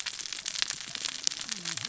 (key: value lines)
label: biophony, cascading saw
recorder: SoundTrap 600 or HydroMoth